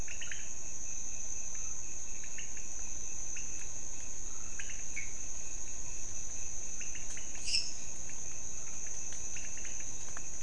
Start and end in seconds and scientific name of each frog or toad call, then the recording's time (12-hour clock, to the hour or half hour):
0.0	10.4	Leptodactylus podicipinus
7.1	8.0	Dendropsophus minutus
1am